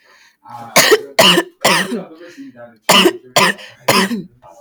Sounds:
Cough